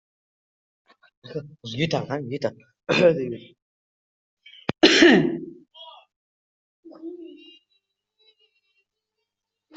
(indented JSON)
{
  "expert_labels": [
    {
      "quality": "ok",
      "cough_type": "unknown",
      "dyspnea": false,
      "wheezing": false,
      "stridor": false,
      "choking": false,
      "congestion": false,
      "nothing": true,
      "diagnosis": "healthy cough",
      "severity": "pseudocough/healthy cough"
    }
  ]
}